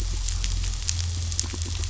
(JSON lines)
{"label": "anthrophony, boat engine", "recorder": "SoundTrap 500"}